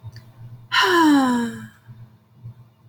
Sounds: Sigh